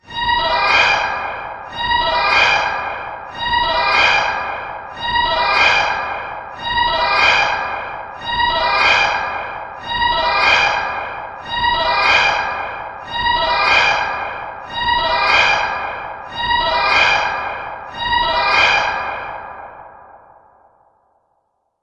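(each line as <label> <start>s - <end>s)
A sharp robotic siren alarm rings repeatedly with reverb. 0.0s - 20.1s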